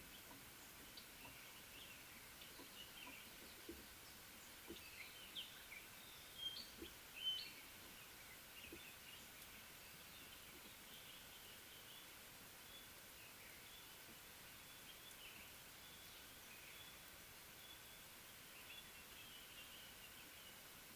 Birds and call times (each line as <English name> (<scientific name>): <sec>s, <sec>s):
Chinspot Batis (Batis molitor): 6.6s